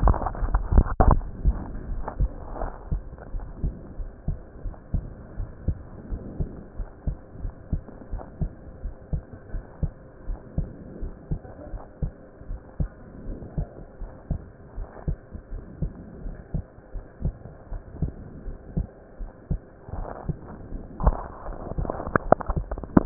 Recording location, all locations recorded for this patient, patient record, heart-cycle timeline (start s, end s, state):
pulmonary valve (PV)
aortic valve (AV)+pulmonary valve (PV)+tricuspid valve (TV)+mitral valve (MV)
#Age: Child
#Sex: Male
#Height: 141.0 cm
#Weight: 30.7 kg
#Pregnancy status: False
#Murmur: Absent
#Murmur locations: nan
#Most audible location: nan
#Systolic murmur timing: nan
#Systolic murmur shape: nan
#Systolic murmur grading: nan
#Systolic murmur pitch: nan
#Systolic murmur quality: nan
#Diastolic murmur timing: nan
#Diastolic murmur shape: nan
#Diastolic murmur grading: nan
#Diastolic murmur pitch: nan
#Diastolic murmur quality: nan
#Outcome: Normal
#Campaign: 2015 screening campaign
0.00	3.32	unannotated
3.32	3.46	S1
3.46	3.62	systole
3.62	3.72	S2
3.72	3.98	diastole
3.98	4.10	S1
4.10	4.26	systole
4.26	4.36	S2
4.36	4.64	diastole
4.64	4.74	S1
4.74	4.92	systole
4.92	5.06	S2
5.06	5.38	diastole
5.38	5.50	S1
5.50	5.66	systole
5.66	5.80	S2
5.80	6.10	diastole
6.10	6.22	S1
6.22	6.38	systole
6.38	6.48	S2
6.48	6.78	diastole
6.78	6.88	S1
6.88	7.06	systole
7.06	7.16	S2
7.16	7.44	diastole
7.44	7.54	S1
7.54	7.72	systole
7.72	7.84	S2
7.84	8.12	diastole
8.12	8.22	S1
8.22	8.40	systole
8.40	8.52	S2
8.52	8.84	diastole
8.84	8.94	S1
8.94	9.12	systole
9.12	9.22	S2
9.22	9.52	diastole
9.52	9.64	S1
9.64	9.82	systole
9.82	9.92	S2
9.92	10.26	diastole
10.26	10.38	S1
10.38	10.56	systole
10.56	10.70	S2
10.70	11.00	diastole
11.00	11.12	S1
11.12	11.30	systole
11.30	11.40	S2
11.40	11.72	diastole
11.72	11.82	S1
11.82	11.98	systole
11.98	12.12	S2
12.12	12.48	diastole
12.48	12.60	S1
12.60	12.76	systole
12.76	12.90	S2
12.90	13.28	diastole
13.28	13.38	S1
13.38	13.56	systole
13.56	13.68	S2
13.68	13.98	diastole
13.98	14.10	S1
14.10	14.28	systole
14.28	14.42	S2
14.42	14.76	diastole
14.76	14.88	S1
14.88	15.06	systole
15.06	15.18	S2
15.18	15.52	diastole
15.52	15.62	S1
15.62	15.80	systole
15.80	15.90	S2
15.90	16.24	diastole
16.24	16.36	S1
16.36	16.54	systole
16.54	16.66	S2
16.66	16.93	diastole
16.93	17.04	S1
17.04	17.20	systole
17.20	17.34	S2
17.34	17.70	diastole
17.70	17.82	S1
17.82	18.00	systole
18.00	18.12	S2
18.12	18.44	diastole
18.44	18.56	S1
18.56	18.74	systole
18.74	18.86	S2
18.86	19.20	diastole
19.20	19.30	S1
19.30	19.48	systole
19.48	19.60	S2
19.60	19.94	diastole
19.94	23.06	unannotated